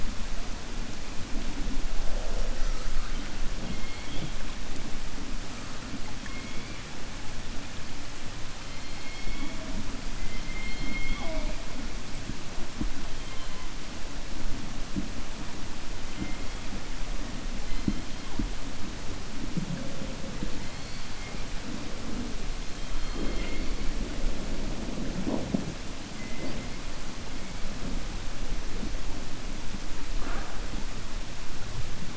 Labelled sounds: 6.1	6.8	killer whale, 1.1 to 2.5 kHz

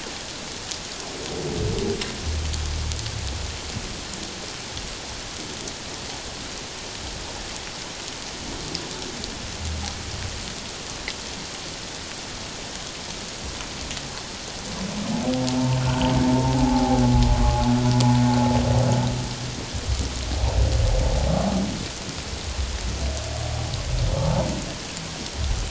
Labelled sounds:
15.8	17.0	humpback whale, 0.78 to 1.6 kHz
24.1	24.5	humpback whale, 0.84 to 1.0 kHz

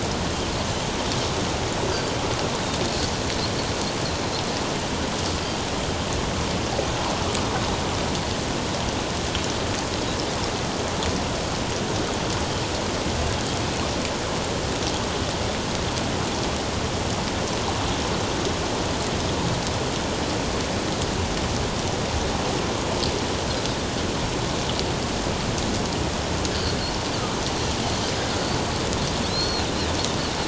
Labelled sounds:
29.3	29.7	Pacific white-sided dolphin, 3.9 to 4.4 kHz

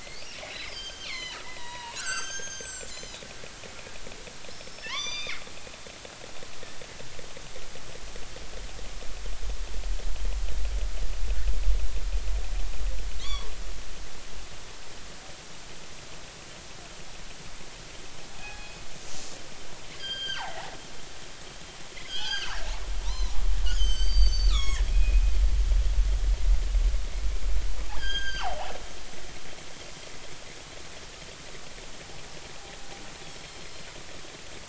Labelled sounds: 0.0	3.2	killer whale, northern resident, G clan, 0.86 to 8.0 kHz
4.5	5.4	killer whale, northern resident, G clan, 0.90 to 6.2 kHz
13.1	13.5	killer whale, northern resident, G clan, 0.93 to 4.7 kHz
18.3	18.8	killer whale, northern resident, G clan, 1.6 to 3.4 kHz
19.9	20.5	killer whale, northern resident, G clan, 1.3 to 4.9 kHz
22.1	23.4	killer whale, northern resident, G clan, 0.90 to 6.3 kHz
23.6	25.2	killer whale, northern resident, G clan, 0.93 to 7.8 kHz
27.9	28.7	killer whale, northern resident, G clan, 0.80 to 6.5 kHz
33.3	33.9	killer whale, northern resident, G clan, 4.0 to 5.6 kHz

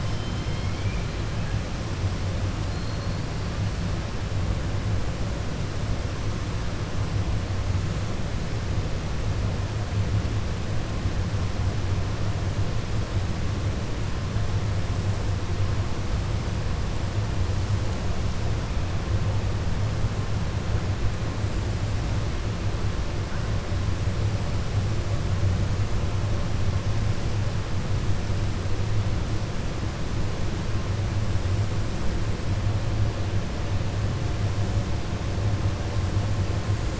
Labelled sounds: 0.0	1.1	killer whale, 1.4 to 4.4 kHz
2.6	3.2	killer whale, 4.1 to 4.6 kHz

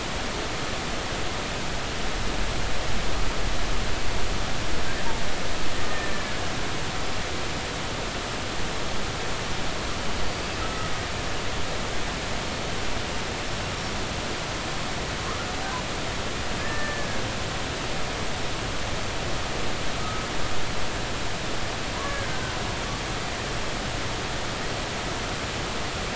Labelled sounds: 10.2	10.9	killer whale, Bigg's (transient), 1.2 to 4.9 kHz
16.6	17.2	killer whale, Bigg's (transient), 1.6 to 1.9 kHz
20.0	20.3	killer whale, Bigg's (transient), 1.1 to 1.4 kHz
22.0	22.3	killer whale, Bigg's (transient), 1.6 to 1.8 kHz

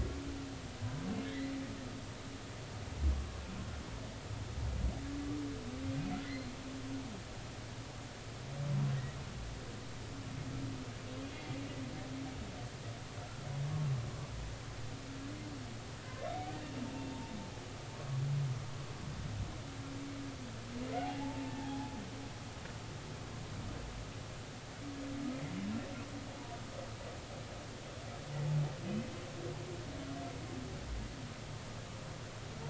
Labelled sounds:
1.2	1.5	humpback whale, 1.6 to 2.1 kHz
6.3	6.5	humpback whale, 4.1 to 4.3 kHz
21.0	21.9	humpback whale, 0.80 to 0.93 kHz
26.3	26.6	humpback whale, 0.83 to 1.0 kHz

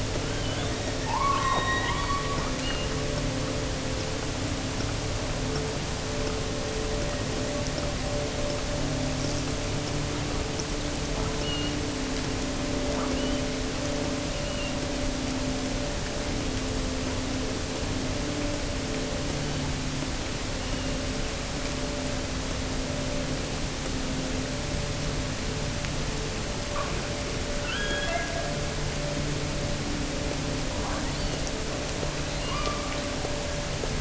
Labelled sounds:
0.0	2.9	killer whale, offshore, 0.75 to 6.1 kHz
11.3	11.8	killer whale, offshore, 2.7 to 4.5 kHz
12.9	13.6	killer whale, offshore, 0.98 to 3.3 kHz
14.2	14.8	killer whale, offshore, 2.5 to 3.0 kHz
19.3	19.9	killer whale, offshore, 2.6 to 4.7 kHz
20.5	21.2	killer whale, offshore, 2.6 to 3.1 kHz
27.5	28.6	killer whale, offshore, 1.2 to 3.5 kHz
30.8	31.7	killer whale, offshore, 0.80 to 4.8 kHz
32.3	33.3	killer whale, offshore, 0.86 to 5.1 kHz

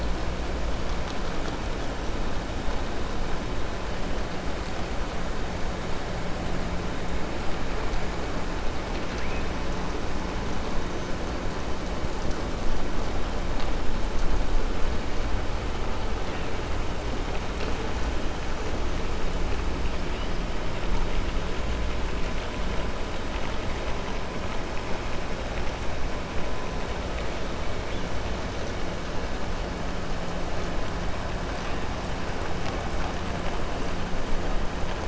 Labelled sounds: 8.8	9.5	killer whale, 1.7 to 6.3 kHz

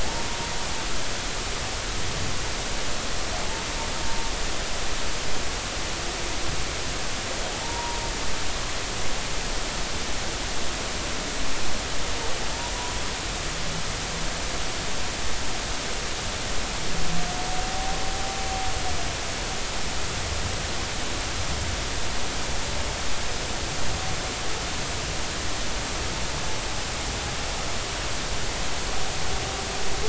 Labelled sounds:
7.5	8.0	humpback whale, 0.80 to 0.99 kHz

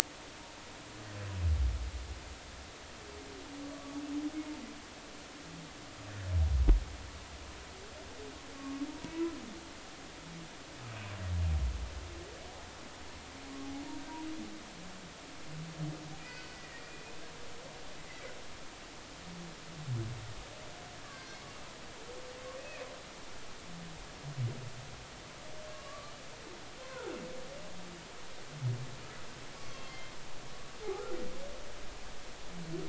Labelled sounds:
3.7	4.0	humpback whale, 1.1 to 1.2 kHz
8.5	8.8	humpback whale, 1.0 to 1.2 kHz
16.2	17.0	humpback whale, 1.9 to 4.6 kHz
21.0	21.3	humpback whale, 0.99 to 1.2 kHz
22.6	22.8	humpback whale, 2.2 to 2.6 kHz
25.7	27.2	humpback whale, 0.80 to 1.6 kHz
29.5	30.1	humpback whale, 1.0 to 3.3 kHz

